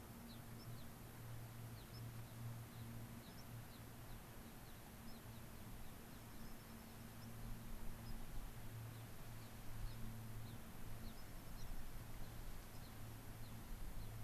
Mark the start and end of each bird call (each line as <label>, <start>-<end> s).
Gray-crowned Rosy-Finch (Leucosticte tephrocotis), 0.2-0.9 s
White-crowned Sparrow (Zonotrichia leucophrys), 0.6-0.7 s
Gray-crowned Rosy-Finch (Leucosticte tephrocotis), 1.7-1.9 s
White-crowned Sparrow (Zonotrichia leucophrys), 1.9-2.0 s
Gray-crowned Rosy-Finch (Leucosticte tephrocotis), 2.2-2.3 s
Gray-crowned Rosy-Finch (Leucosticte tephrocotis), 2.7-2.9 s
Gray-crowned Rosy-Finch (Leucosticte tephrocotis), 3.2-4.8 s
White-crowned Sparrow (Zonotrichia leucophrys), 3.3-3.4 s
White-crowned Sparrow (Zonotrichia leucophrys), 5.0-5.2 s
Gray-crowned Rosy-Finch (Leucosticte tephrocotis), 5.1-6.5 s
Dark-eyed Junco (Junco hyemalis), 5.9-7.1 s
White-crowned Sparrow (Zonotrichia leucophrys), 7.2-7.3 s
White-crowned Sparrow (Zonotrichia leucophrys), 8.0-8.2 s
Gray-crowned Rosy-Finch (Leucosticte tephrocotis), 8.9-14.2 s
White-crowned Sparrow (Zonotrichia leucophrys), 9.9-10.0 s
White-crowned Sparrow (Zonotrichia leucophrys), 11.1-11.2 s
Dark-eyed Junco (Junco hyemalis), 11.2-12.1 s
White-crowned Sparrow (Zonotrichia leucophrys), 12.7-12.8 s